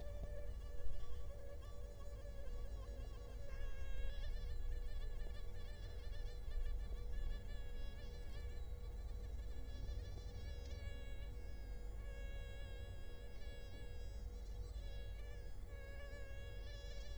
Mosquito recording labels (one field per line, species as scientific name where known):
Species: Culex quinquefasciatus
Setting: cup